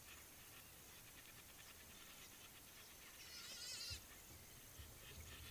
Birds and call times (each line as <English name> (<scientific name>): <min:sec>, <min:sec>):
Hadada Ibis (Bostrychia hagedash): 0:03.6